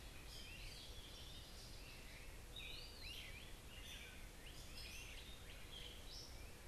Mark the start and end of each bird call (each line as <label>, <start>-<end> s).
Eastern Wood-Pewee (Contopus virens), 0.0-6.7 s
Gray Catbird (Dumetella carolinensis), 0.0-6.7 s
Great Crested Flycatcher (Myiarchus crinitus), 0.0-6.7 s
Northern Waterthrush (Parkesia noveboracensis), 0.1-2.2 s